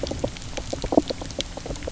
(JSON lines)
{"label": "biophony, knock croak", "recorder": "SoundTrap 300"}